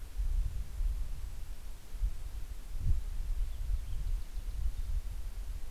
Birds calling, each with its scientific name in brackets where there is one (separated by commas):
Golden-crowned Kinglet (Regulus satrapa), Cassin's Finch (Haemorhous cassinii)